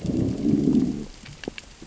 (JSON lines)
{"label": "biophony, growl", "recorder": "SoundTrap 600 or HydroMoth"}